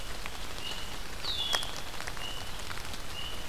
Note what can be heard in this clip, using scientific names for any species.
Agelaius phoeniceus